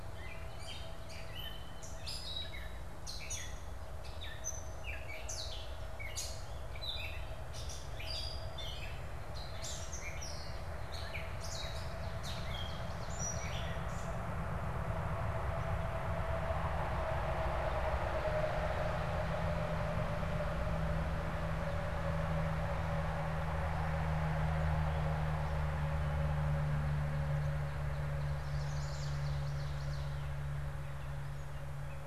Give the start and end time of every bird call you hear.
[0.00, 14.20] Gray Catbird (Dumetella carolinensis)
[11.60, 13.70] Ovenbird (Seiurus aurocapilla)
[27.60, 30.40] Ovenbird (Seiurus aurocapilla)
[28.40, 29.40] Chestnut-sided Warbler (Setophaga pensylvanica)

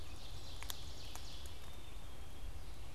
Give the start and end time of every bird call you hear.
[0.00, 2.95] Ovenbird (Seiurus aurocapilla)
[0.00, 2.95] Red-eyed Vireo (Vireo olivaceus)
[1.40, 2.95] Black-capped Chickadee (Poecile atricapillus)

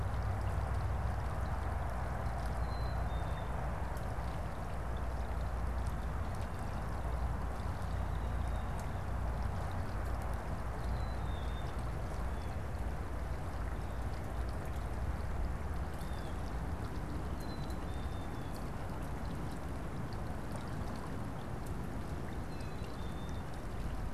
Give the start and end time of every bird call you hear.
[2.19, 3.59] Black-capped Chickadee (Poecile atricapillus)
[10.39, 11.89] Black-capped Chickadee (Poecile atricapillus)
[15.79, 16.59] Blue Jay (Cyanocitta cristata)
[17.19, 18.59] Black-capped Chickadee (Poecile atricapillus)
[22.19, 23.49] Black-capped Chickadee (Poecile atricapillus)
[22.39, 22.89] Blue Jay (Cyanocitta cristata)

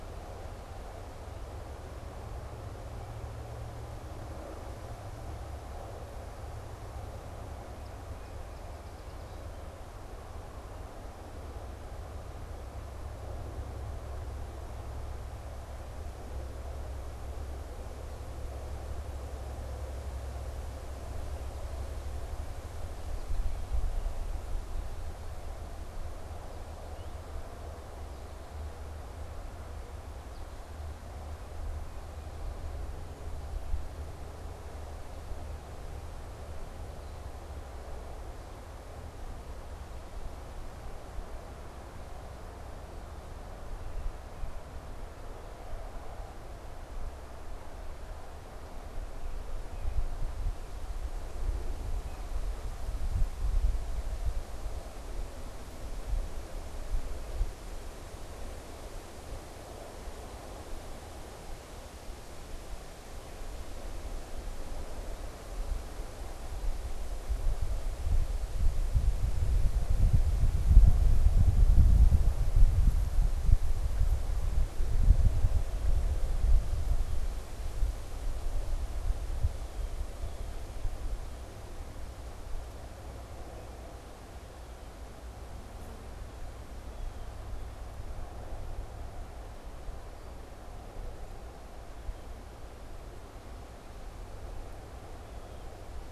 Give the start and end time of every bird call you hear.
[7.63, 9.73] Song Sparrow (Melospiza melodia)
[21.03, 23.83] American Goldfinch (Spinus tristis)
[26.73, 27.23] unidentified bird
[30.23, 30.83] American Goldfinch (Spinus tristis)
[36.83, 37.33] unidentified bird
[49.63, 52.33] unidentified bird
[79.43, 80.83] Blue Jay (Cyanocitta cristata)
[95.13, 95.83] Blue Jay (Cyanocitta cristata)

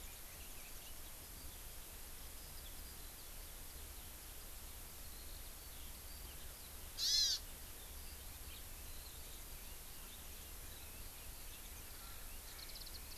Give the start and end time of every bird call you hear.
[6.95, 7.45] Hawaii Amakihi (Chlorodrepanis virens)

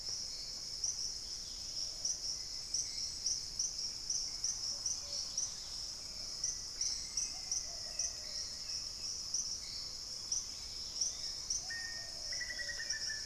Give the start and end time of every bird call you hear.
[0.00, 13.25] Hauxwell's Thrush (Turdus hauxwelli)
[0.00, 13.25] Plumbeous Pigeon (Patagioenas plumbea)
[1.12, 6.12] Dusky-capped Greenlet (Pachysylvia hypoxantha)
[3.82, 9.12] Thrush-like Wren (Campylorhynchus turdinus)
[6.22, 13.25] Black-faced Antthrush (Formicarius analis)
[6.92, 9.32] Black-capped Becard (Pachyramphus marginatus)
[10.12, 11.42] Dusky-capped Greenlet (Pachysylvia hypoxantha)
[10.72, 13.12] unidentified bird
[11.22, 13.25] Black-tailed Trogon (Trogon melanurus)

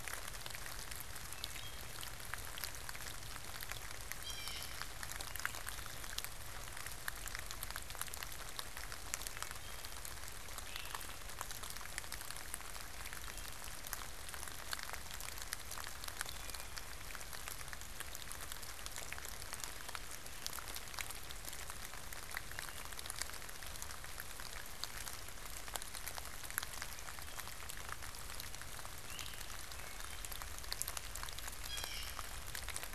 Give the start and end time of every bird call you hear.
[1.26, 2.36] Blue Jay (Cyanocitta cristata)
[4.16, 4.96] Blue Jay (Cyanocitta cristata)
[9.16, 10.16] Wood Thrush (Hylocichla mustelina)
[10.36, 11.46] Great Crested Flycatcher (Myiarchus crinitus)
[16.06, 17.36] Wood Thrush (Hylocichla mustelina)
[28.86, 29.66] Great Crested Flycatcher (Myiarchus crinitus)
[29.66, 30.46] Wood Thrush (Hylocichla mustelina)
[31.46, 32.36] Blue Jay (Cyanocitta cristata)

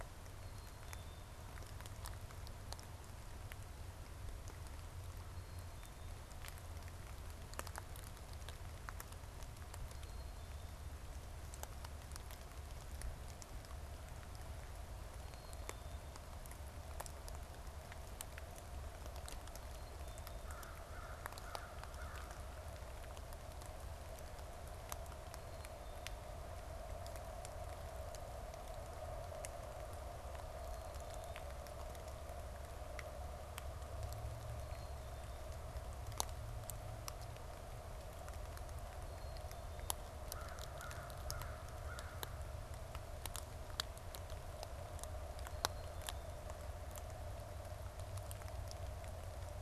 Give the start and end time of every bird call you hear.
[0.28, 1.28] Black-capped Chickadee (Poecile atricapillus)
[5.18, 6.18] Black-capped Chickadee (Poecile atricapillus)
[9.88, 10.88] Black-capped Chickadee (Poecile atricapillus)
[15.08, 16.08] Black-capped Chickadee (Poecile atricapillus)
[19.48, 20.48] Black-capped Chickadee (Poecile atricapillus)
[20.38, 22.78] American Crow (Corvus brachyrhynchos)
[34.58, 35.38] Black-capped Chickadee (Poecile atricapillus)
[38.98, 40.08] Black-capped Chickadee (Poecile atricapillus)
[40.28, 42.48] American Crow (Corvus brachyrhynchos)

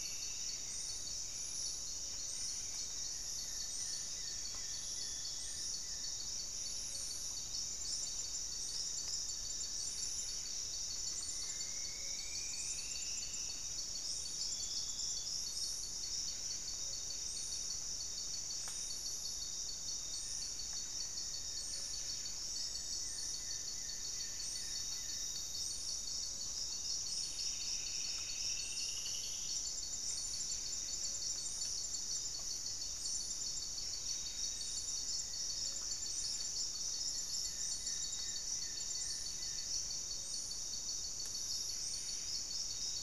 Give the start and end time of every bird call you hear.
[0.00, 0.60] Striped Woodcreeper (Xiphorhynchus obsoletus)
[0.00, 6.30] Hauxwell's Thrush (Turdus hauxwelli)
[0.00, 43.02] Buff-breasted Wren (Cantorchilus leucotis)
[0.00, 43.02] Paradise Tanager (Tangara chilensis)
[2.90, 6.30] Goeldi's Antbird (Akletos goeldii)
[7.70, 10.00] Black-faced Antthrush (Formicarius analis)
[11.00, 13.70] Striped Woodcreeper (Xiphorhynchus obsoletus)
[11.70, 43.02] Gray-fronted Dove (Leptotila rufaxilla)
[20.10, 22.30] Black-faced Antthrush (Formicarius analis)
[22.50, 25.50] Goeldi's Antbird (Akletos goeldii)
[26.60, 29.80] Striped Woodcreeper (Xiphorhynchus obsoletus)
[34.30, 36.60] Black-faced Antthrush (Formicarius analis)
[36.90, 39.80] Goeldi's Antbird (Akletos goeldii)

